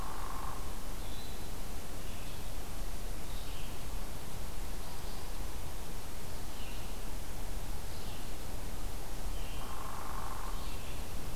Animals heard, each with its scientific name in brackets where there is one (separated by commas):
Hairy Woodpecker (Dryobates villosus), Red-eyed Vireo (Vireo olivaceus)